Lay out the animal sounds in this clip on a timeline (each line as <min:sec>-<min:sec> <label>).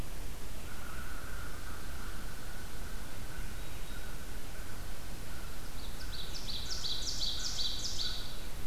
0:00.4-0:08.7 American Crow (Corvus brachyrhynchos)
0:05.6-0:08.7 Ovenbird (Seiurus aurocapilla)